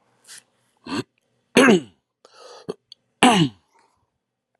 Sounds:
Throat clearing